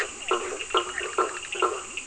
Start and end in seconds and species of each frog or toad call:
0.0	1.7	Bischoff's tree frog
0.0	2.0	blacksmith tree frog
0.0	2.0	Leptodactylus latrans
0.0	2.0	Physalaemus cuvieri
0.0	2.0	Cochran's lime tree frog
10pm

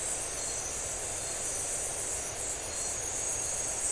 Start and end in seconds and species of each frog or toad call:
none
2am

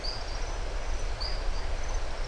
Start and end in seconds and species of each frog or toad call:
0.0	0.5	marbled tropical bullfrog
1.1	1.8	marbled tropical bullfrog
~6pm

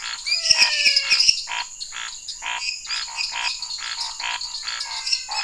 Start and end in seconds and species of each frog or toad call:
0.0	5.4	lesser tree frog
0.0	5.4	dwarf tree frog
0.0	5.4	Scinax fuscovarius
0.2	0.4	Leptodactylus elenae
0.2	1.3	menwig frog
9:30pm

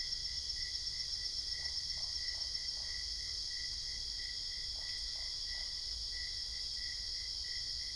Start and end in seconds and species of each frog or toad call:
1.4	3.4	Usina tree frog
4.6	6.3	Usina tree frog
~midnight

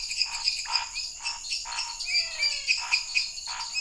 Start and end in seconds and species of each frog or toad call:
0.0	3.8	lesser tree frog
0.0	3.8	dwarf tree frog
0.0	3.8	pointedbelly frog
0.0	3.8	Pithecopus azureus
0.2	3.8	Scinax fuscovarius
2.0	3.2	menwig frog
8:30pm

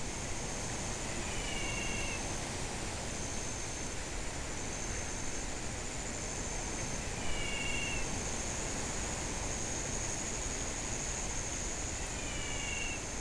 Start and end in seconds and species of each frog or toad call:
0.9	2.2	menwig frog
6.9	8.3	menwig frog
11.8	13.2	menwig frog
~7pm

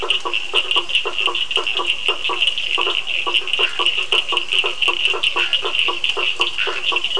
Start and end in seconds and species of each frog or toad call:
0.0	7.1	blacksmith tree frog
0.0	7.1	Cochran's lime tree frog
2.4	7.1	Physalaemus cuvieri
4.6	7.1	two-colored oval frog
5.2	7.1	Scinax perereca
7pm

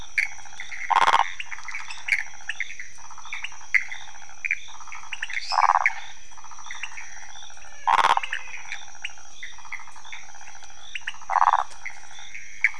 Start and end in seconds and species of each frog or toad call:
0.0	12.7	pointedbelly frog
0.0	12.7	waxy monkey tree frog
0.0	12.7	Pithecopus azureus
5.3	5.7	lesser tree frog
midnight

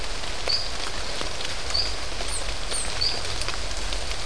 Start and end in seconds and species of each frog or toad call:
0.4	0.8	marbled tropical bullfrog
1.7	2.0	marbled tropical bullfrog
2.9	3.3	marbled tropical bullfrog
~7pm

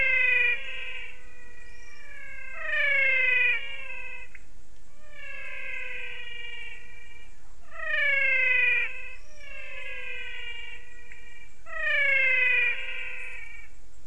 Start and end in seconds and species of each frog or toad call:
0.0	14.0	menwig frog
4.2	4.6	pointedbelly frog
11.0	11.3	pointedbelly frog
~6pm

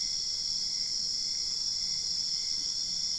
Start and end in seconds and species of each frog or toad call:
none
~3am

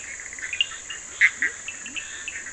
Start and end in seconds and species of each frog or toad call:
0.0	2.5	Bischoff's tree frog
0.0	2.5	Cochran's lime tree frog
1.3	2.5	Leptodactylus latrans
~10pm

